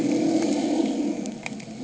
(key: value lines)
label: anthrophony, boat engine
recorder: HydroMoth